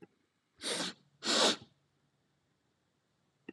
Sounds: Sniff